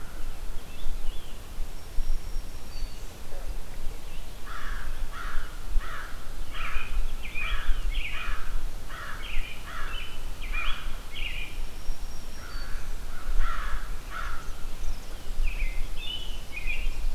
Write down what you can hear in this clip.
American Robin, Black-throated Green Warbler, American Crow, Chimney Swift